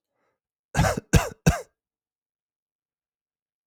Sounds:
Cough